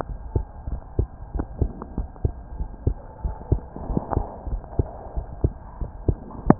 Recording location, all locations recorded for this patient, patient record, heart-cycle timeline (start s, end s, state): pulmonary valve (PV)
aortic valve (AV)+pulmonary valve (PV)+tricuspid valve (TV)+mitral valve (MV)
#Age: Child
#Sex: Male
#Height: 133.0 cm
#Weight: 26.4 kg
#Pregnancy status: False
#Murmur: Absent
#Murmur locations: nan
#Most audible location: nan
#Systolic murmur timing: nan
#Systolic murmur shape: nan
#Systolic murmur grading: nan
#Systolic murmur pitch: nan
#Systolic murmur quality: nan
#Diastolic murmur timing: nan
#Diastolic murmur shape: nan
#Diastolic murmur grading: nan
#Diastolic murmur pitch: nan
#Diastolic murmur quality: nan
#Outcome: Abnormal
#Campaign: 2015 screening campaign
0.00	0.07	unannotated
0.07	0.20	S1
0.20	0.32	systole
0.32	0.46	S2
0.46	0.66	diastole
0.66	0.80	S1
0.80	0.96	systole
0.96	1.08	S2
1.08	1.32	diastole
1.32	1.46	S1
1.46	1.58	systole
1.58	1.72	S2
1.72	1.96	diastole
1.96	2.10	S1
2.10	2.22	systole
2.22	2.36	S2
2.36	2.56	diastole
2.56	2.68	S1
2.68	2.84	systole
2.84	2.98	S2
2.98	3.22	diastole
3.22	3.36	S1
3.36	3.48	systole
3.48	3.64	S2
3.64	3.88	diastole
3.88	4.02	S1
4.02	4.12	systole
4.12	4.26	S2
4.26	4.48	diastole
4.48	4.62	S1
4.62	4.74	systole
4.74	4.88	S2
4.88	5.16	diastole
5.16	5.26	S1
5.26	5.42	systole
5.42	5.54	S2
5.54	5.80	diastole
5.80	5.90	S1
5.90	6.04	systole
6.04	6.18	S2
6.18	6.59	unannotated